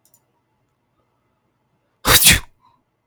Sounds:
Sneeze